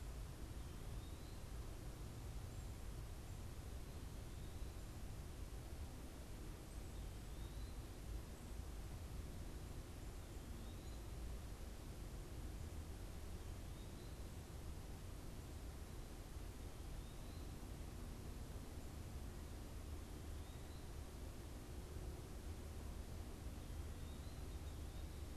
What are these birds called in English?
Eastern Wood-Pewee